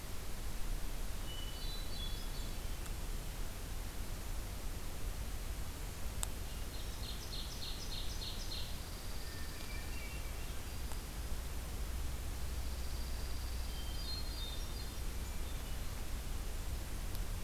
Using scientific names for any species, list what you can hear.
Catharus guttatus, Seiurus aurocapilla, Junco hyemalis, Setophaga virens